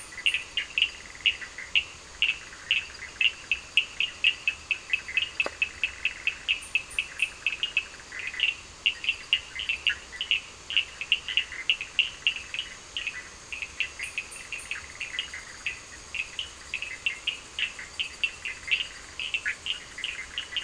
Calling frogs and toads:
Boana bischoffi, Sphaenorhynchus surdus

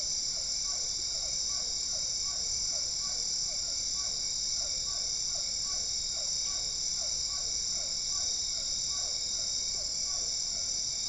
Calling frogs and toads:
Physalaemus cuvieri

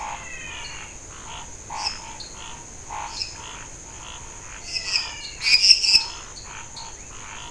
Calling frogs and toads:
Physalaemus albonotatus, Dendropsophus nanus, Scinax fuscovarius, Dendropsophus minutus

